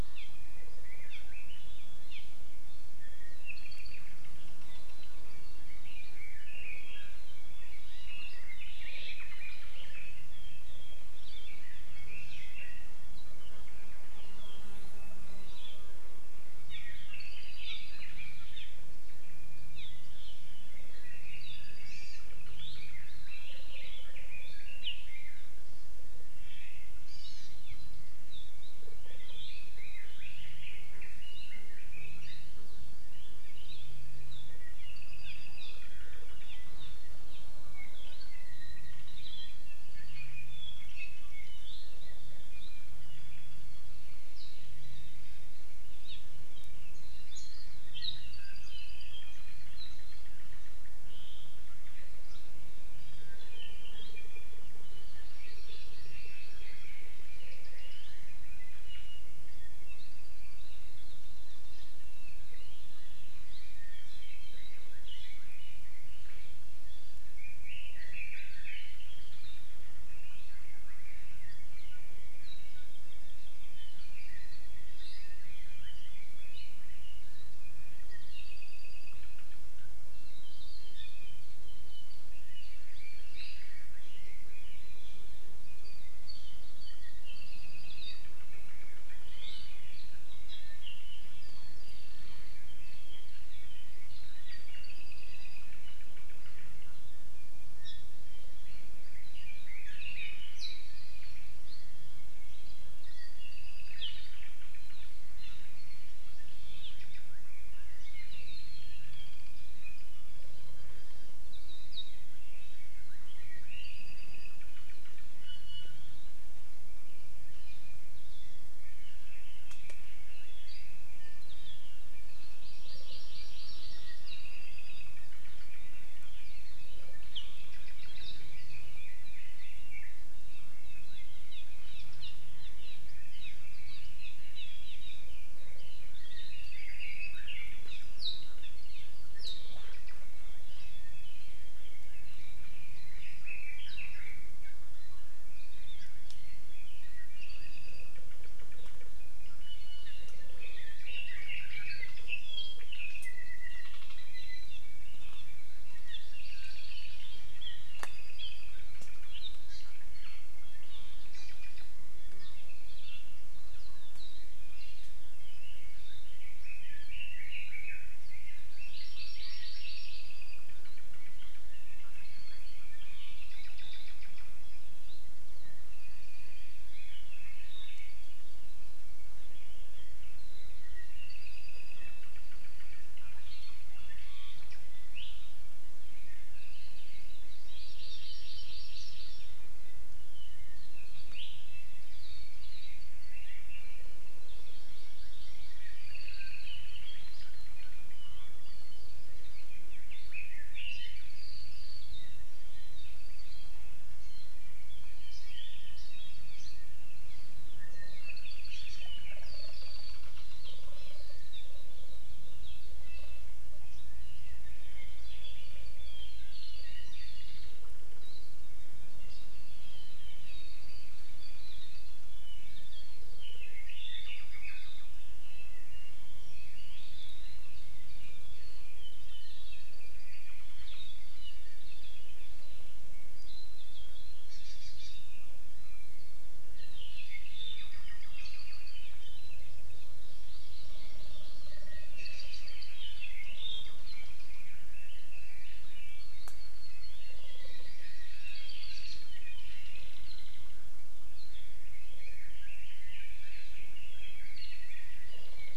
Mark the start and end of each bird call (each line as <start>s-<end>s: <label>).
0.1s-0.4s: Apapane (Himatione sanguinea)
1.1s-1.2s: Apapane (Himatione sanguinea)
2.1s-2.3s: Apapane (Himatione sanguinea)
3.5s-4.1s: Apapane (Himatione sanguinea)
5.7s-9.7s: Red-billed Leiothrix (Leiothrix lutea)
11.1s-11.5s: Hawaii Akepa (Loxops coccineus)
11.6s-13.1s: Apapane (Himatione sanguinea)
15.5s-15.8s: Hawaii Akepa (Loxops coccineus)
16.7s-18.1s: Apapane (Himatione sanguinea)
18.5s-18.7s: Apapane (Himatione sanguinea)
19.7s-19.9s: Apapane (Himatione sanguinea)
21.0s-25.7s: Red-billed Leiothrix (Leiothrix lutea)
21.4s-22.1s: Apapane (Himatione sanguinea)
21.9s-22.3s: Hawaii Amakihi (Chlorodrepanis virens)
27.0s-27.5s: Hawaii Amakihi (Chlorodrepanis virens)
29.1s-32.7s: Red-billed Leiothrix (Leiothrix lutea)
33.6s-33.9s: Hawaii Akepa (Loxops coccineus)
34.8s-36.0s: Apapane (Himatione sanguinea)
36.4s-36.6s: Apapane (Himatione sanguinea)
39.2s-39.5s: Hawaii Akepa (Loxops coccineus)
40.1s-42.1s: Apapane (Himatione sanguinea)
46.0s-46.2s: Apapane (Himatione sanguinea)
48.2s-49.3s: Apapane (Himatione sanguinea)
53.5s-54.8s: Apapane (Himatione sanguinea)
55.2s-57.1s: Apapane (Himatione sanguinea)
55.3s-59.5s: Red-billed Leiothrix (Leiothrix lutea)
59.9s-60.7s: Apapane (Himatione sanguinea)
63.8s-66.6s: Red-billed Leiothrix (Leiothrix lutea)
67.4s-69.5s: Red-billed Leiothrix (Leiothrix lutea)
70.1s-72.9s: Red-billed Leiothrix (Leiothrix lutea)
74.0s-77.3s: Red-billed Leiothrix (Leiothrix lutea)
78.3s-79.5s: Apapane (Himatione sanguinea)
81.6s-85.4s: Red-billed Leiothrix (Leiothrix lutea)
87.2s-88.3s: Apapane (Himatione sanguinea)
91.8s-92.6s: Hawaii Creeper (Loxops mana)
94.7s-95.7s: Apapane (Himatione sanguinea)
97.8s-98.2s: Apapane (Himatione sanguinea)
99.3s-101.2s: Red-billed Leiothrix (Leiothrix lutea)
103.4s-104.2s: Apapane (Himatione sanguinea)
105.4s-105.6s: Apapane (Himatione sanguinea)
113.7s-114.8s: Apapane (Himatione sanguinea)
115.4s-116.1s: Iiwi (Drepanis coccinea)
118.8s-121.4s: Red-billed Leiothrix (Leiothrix lutea)
122.6s-124.3s: Hawaii Amakihi (Chlorodrepanis virens)
124.3s-125.3s: Apapane (Himatione sanguinea)
128.5s-130.3s: Red-billed Leiothrix (Leiothrix lutea)
131.5s-133.0s: Apapane (Himatione sanguinea)
133.8s-134.9s: Apapane (Himatione sanguinea)
135.6s-137.4s: Red-billed Leiothrix (Leiothrix lutea)
137.8s-138.1s: Apapane (Himatione sanguinea)
141.9s-144.5s: Red-billed Leiothrix (Leiothrix lutea)
145.7s-146.1s: Hawaii Akepa (Loxops coccineus)
147.4s-148.2s: Apapane (Himatione sanguinea)
149.6s-150.4s: Iiwi (Drepanis coccinea)
150.6s-152.2s: Red-billed Leiothrix (Leiothrix lutea)
152.3s-154.8s: Apapane (Himatione sanguinea)
156.0s-157.2s: Apapane (Himatione sanguinea)
157.9s-158.7s: Apapane (Himatione sanguinea)
159.7s-159.9s: Hawaii Amakihi (Chlorodrepanis virens)
161.3s-161.6s: Hawaii Amakihi (Chlorodrepanis virens)
162.9s-163.4s: Iiwi (Drepanis coccinea)
165.3s-168.2s: Red-billed Leiothrix (Leiothrix lutea)
168.7s-170.1s: Hawaii Amakihi (Chlorodrepanis virens)
170.1s-170.7s: Apapane (Himatione sanguinea)
175.9s-177.0s: Apapane (Himatione sanguinea)
181.2s-182.2s: Apapane (Himatione sanguinea)
183.2s-184.7s: Iiwi (Drepanis coccinea)
187.6s-189.6s: Hawaii Amakihi (Chlorodrepanis virens)
194.5s-196.0s: Hawaii Amakihi (Chlorodrepanis virens)
196.0s-196.8s: Apapane (Himatione sanguinea)
200.3s-201.5s: Red-billed Leiothrix (Leiothrix lutea)
208.2s-209.2s: Apapane (Himatione sanguinea)
213.0s-213.5s: Iiwi (Drepanis coccinea)
215.2s-216.4s: Apapane (Himatione sanguinea)
223.3s-225.3s: Apapane (Himatione sanguinea)
229.7s-230.8s: Apapane (Himatione sanguinea)
234.5s-235.2s: Hawaii Amakihi (Chlorodrepanis virens)
236.7s-239.2s: Apapane (Himatione sanguinea)
240.2s-242.0s: Hawaii Amakihi (Chlorodrepanis virens)
242.1s-244.8s: Apapane (Himatione sanguinea)
247.6s-248.9s: Hawaii Amakihi (Chlorodrepanis virens)
252.0s-255.7s: Red-billed Leiothrix (Leiothrix lutea)